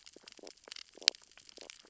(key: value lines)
label: biophony, stridulation
recorder: SoundTrap 600 or HydroMoth